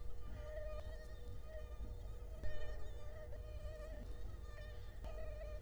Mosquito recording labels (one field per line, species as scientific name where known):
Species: Culex quinquefasciatus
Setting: cup